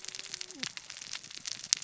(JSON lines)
{"label": "biophony, cascading saw", "recorder": "SoundTrap 600 or HydroMoth"}